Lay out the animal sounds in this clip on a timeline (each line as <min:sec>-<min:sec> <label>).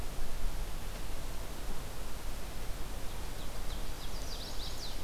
0:02.8-0:04.9 Ovenbird (Seiurus aurocapilla)
0:03.9-0:05.0 Chestnut-sided Warbler (Setophaga pensylvanica)